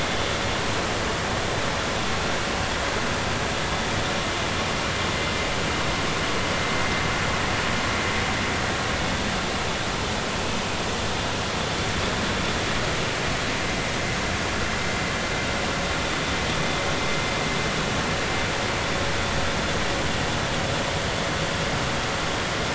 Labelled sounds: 16.0	16.3	vessel noise, 3.5 to 3.6 kHz

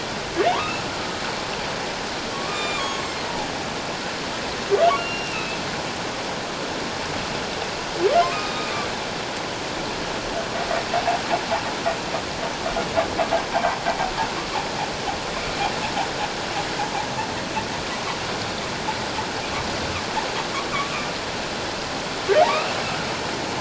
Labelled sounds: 0.5	0.8	humpback whale, 0.88 to 1.4 kHz
2.3	3.0	humpback whale, 1.0 to 7.3 kHz
5.0	5.6	humpback whale, 2.4 to 4.2 kHz
8.3	8.9	humpback whale, 2.3 to 3.8 kHz

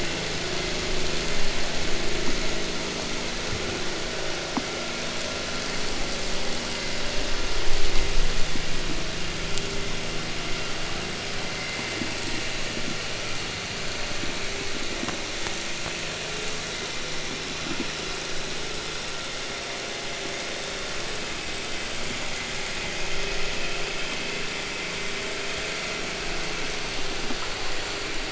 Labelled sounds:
0.1	1.7	vessel noise, 1.3 to 5.4 kHz

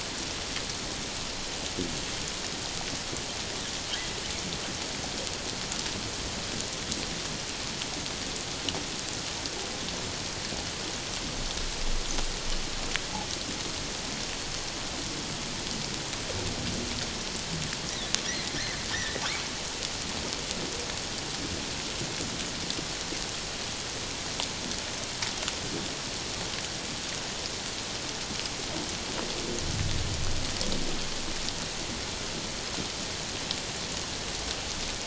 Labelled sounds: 18.9	19.2	humpback whale, 1.7 to 2.0 kHz

